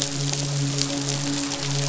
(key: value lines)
label: biophony, midshipman
recorder: SoundTrap 500